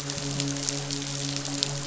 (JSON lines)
{"label": "biophony, midshipman", "recorder": "SoundTrap 500"}